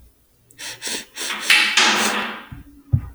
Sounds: Sniff